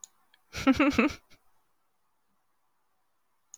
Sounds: Laughter